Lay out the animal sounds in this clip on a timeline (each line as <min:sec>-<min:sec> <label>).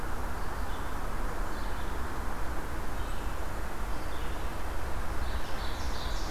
0:00.0-0:06.3 Red-eyed Vireo (Vireo olivaceus)
0:05.1-0:06.3 Ovenbird (Seiurus aurocapilla)